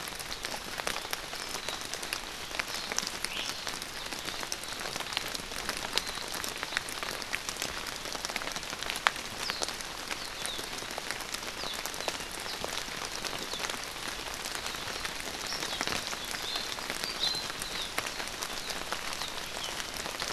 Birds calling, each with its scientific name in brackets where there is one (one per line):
Iiwi (Drepanis coccinea)